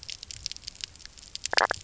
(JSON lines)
{"label": "biophony, knock croak", "recorder": "SoundTrap 300"}